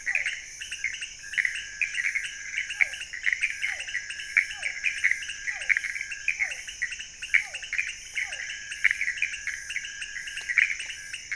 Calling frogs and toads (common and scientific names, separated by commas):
Pithecopus azureus, pointedbelly frog (Leptodactylus podicipinus), Physalaemus cuvieri